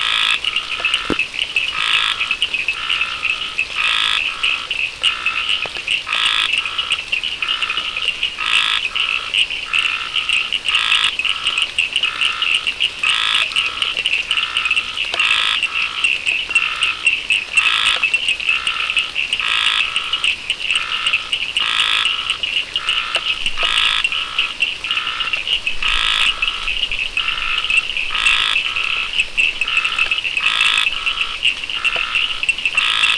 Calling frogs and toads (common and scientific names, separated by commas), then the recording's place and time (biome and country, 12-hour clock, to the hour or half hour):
Scinax perereca, Cochran's lime tree frog (Sphaenorhynchus surdus)
Atlantic Forest, Brazil, 6:30pm